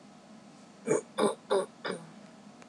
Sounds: Throat clearing